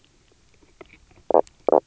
{"label": "biophony, knock croak", "recorder": "SoundTrap 300"}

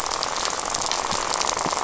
{"label": "biophony, rattle", "recorder": "SoundTrap 500"}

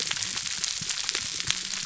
{"label": "biophony, whup", "recorder": "SoundTrap 300"}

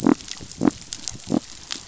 {"label": "biophony", "recorder": "SoundTrap 500"}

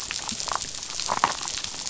{"label": "biophony, damselfish", "recorder": "SoundTrap 500"}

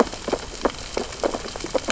{"label": "biophony, sea urchins (Echinidae)", "recorder": "SoundTrap 600 or HydroMoth"}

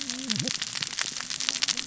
{"label": "biophony, cascading saw", "recorder": "SoundTrap 600 or HydroMoth"}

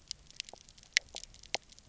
{"label": "biophony, pulse", "recorder": "SoundTrap 300"}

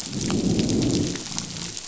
{"label": "biophony, growl", "recorder": "SoundTrap 500"}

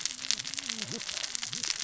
{"label": "biophony, cascading saw", "recorder": "SoundTrap 600 or HydroMoth"}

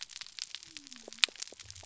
{"label": "biophony", "recorder": "SoundTrap 300"}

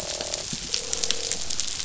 {"label": "biophony, croak", "recorder": "SoundTrap 500"}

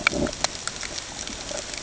{"label": "ambient", "recorder": "HydroMoth"}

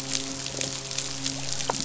{"label": "biophony, midshipman", "recorder": "SoundTrap 500"}
{"label": "biophony", "recorder": "SoundTrap 500"}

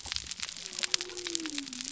{"label": "biophony", "recorder": "SoundTrap 300"}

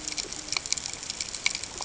{"label": "ambient", "recorder": "HydroMoth"}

